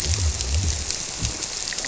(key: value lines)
label: biophony
recorder: SoundTrap 300